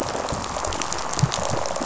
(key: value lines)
label: biophony, rattle response
recorder: SoundTrap 500